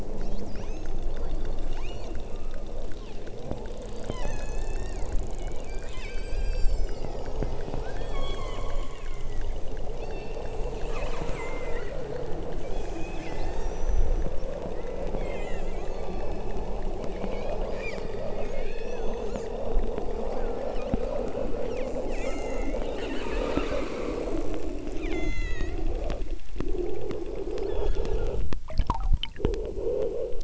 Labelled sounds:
0.1	0.4	killer whale, southern Alaska resident, 3.1 to 6.5 kHz
1.8	2.1	killer whale, southern Alaska resident, 2.1 to 6.0 kHz
2.9	3.3	killer whale, southern Alaska resident, 2.1 to 6.2 kHz
4.0	9.6	killer whale, southern Alaska resident, 0.89 to 8.0 kHz
10.0	12.0	killer whale, southern Alaska resident, 1.0 to 8.0 kHz
12.7	14.4	killer whale, southern Alaska resident, 1.5 to 8.0 kHz
15.1	16.6	killer whale, southern Alaska resident, 1.0 to 8.0 kHz
17.1	19.5	killer whale, southern Alaska resident, 1.2 to 8.0 kHz
20.3	21.0	killer whale, southern Alaska resident, 1.1 to 5.7 kHz
22.1	24.3	killer whale, southern Alaska resident, 1.1 to 8.0 kHz
25.0	25.8	killer whale, southern Alaska resident, 1.0 to 7.4 kHz
27.6	28.4	killer whale, southern Alaska resident, 1.5 to 6.9 kHz

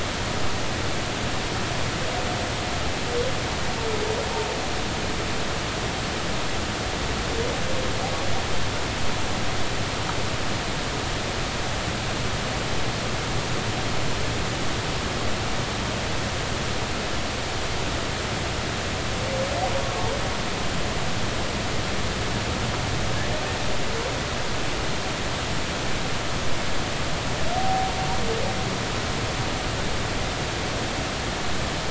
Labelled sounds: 27.6	27.9	humpback whale, 0.80 to 0.83 kHz

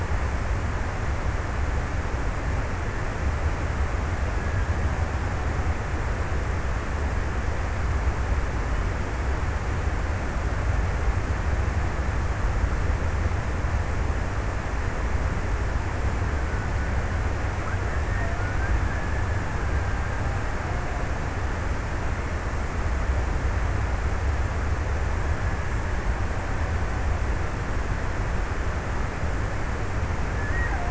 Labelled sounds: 18.4	21.8	killer whale, Bigg's (transient), 0.37 to 2.1 kHz

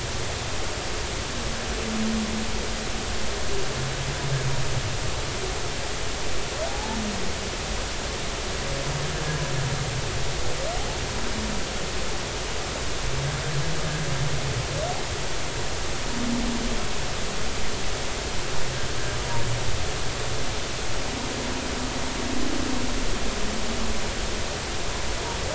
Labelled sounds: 6.7	7.0	humpback whale, 0.80 to 0.96 kHz

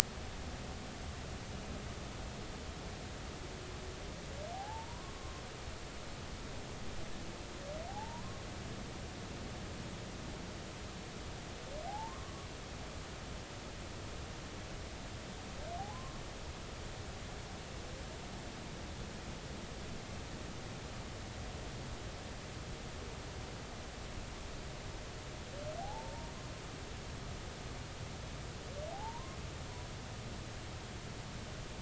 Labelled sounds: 4.5	5.4	humpback whale, 0.80 to 1.1 kHz
7.9	8.4	humpback whale, 0.80 to 1.2 kHz
11.9	12.5	humpback whale, 0.80 to 1.2 kHz
15.8	16.2	humpback whale, 0.80 to 1.2 kHz
25.8	26.3	humpback whale, 0.80 to 0.99 kHz
28.9	29.4	humpback whale, 0.80 to 1.1 kHz

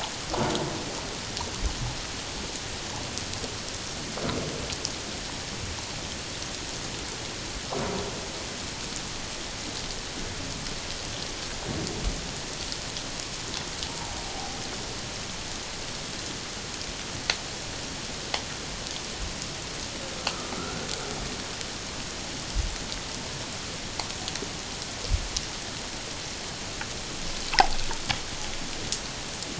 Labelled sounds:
13.9	14.5	humpback whale, 0.78 to 0.97 kHz
20.6	20.8	humpback whale, 1.3 to 1.6 kHz
27.5	27.8	humpback whale, 0.78 to 1.1 kHz

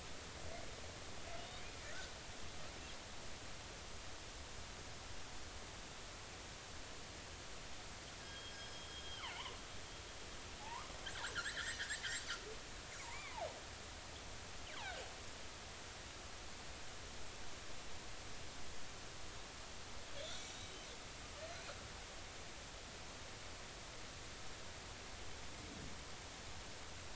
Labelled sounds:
8.2	9.4	killer whale, northern resident, G clan, 2.6 to 5.2 kHz
10.6	12.0	killer whale, northern resident, G clan, 0.80 to 2.1 kHz
13.0	13.5	killer whale, northern resident, G clan, 0.80 to 2.5 kHz
20.2	20.8	killer whale, northern resident, G clan, 3.2 to 6.1 kHz

